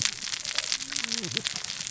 {"label": "biophony, cascading saw", "recorder": "SoundTrap 600 or HydroMoth"}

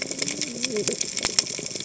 {"label": "biophony, cascading saw", "recorder": "HydroMoth"}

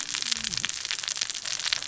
{"label": "biophony, cascading saw", "recorder": "SoundTrap 600 or HydroMoth"}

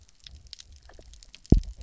{"label": "biophony, double pulse", "recorder": "SoundTrap 300"}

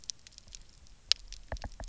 {"label": "biophony, knock", "recorder": "SoundTrap 300"}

